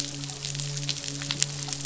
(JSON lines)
{"label": "biophony, midshipman", "recorder": "SoundTrap 500"}